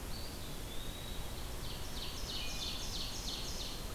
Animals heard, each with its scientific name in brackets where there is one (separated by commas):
Wood Thrush (Hylocichla mustelina), Eastern Wood-Pewee (Contopus virens), Ovenbird (Seiurus aurocapilla)